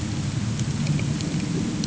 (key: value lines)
label: anthrophony, boat engine
recorder: HydroMoth